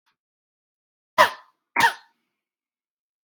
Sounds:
Cough